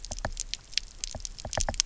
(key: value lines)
label: biophony, knock
recorder: SoundTrap 300